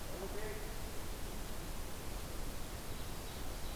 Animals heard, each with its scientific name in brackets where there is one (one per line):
Ovenbird (Seiurus aurocapilla)